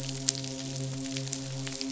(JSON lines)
{"label": "biophony, midshipman", "recorder": "SoundTrap 500"}